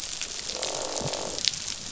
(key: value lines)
label: biophony, croak
recorder: SoundTrap 500